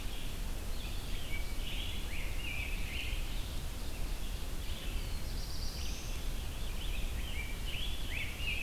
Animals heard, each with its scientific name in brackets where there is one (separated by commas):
Rose-breasted Grosbeak (Pheucticus ludovicianus), Black-throated Blue Warbler (Setophaga caerulescens), Red-eyed Vireo (Vireo olivaceus)